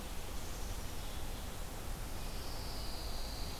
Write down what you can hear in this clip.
Red-eyed Vireo, Pine Warbler